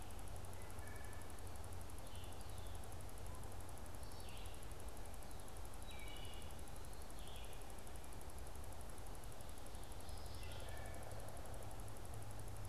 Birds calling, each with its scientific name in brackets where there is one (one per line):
Wood Thrush (Hylocichla mustelina)
Pileated Woodpecker (Dryocopus pileatus)
Red-eyed Vireo (Vireo olivaceus)